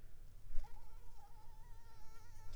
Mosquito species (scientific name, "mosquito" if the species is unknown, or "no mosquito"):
mosquito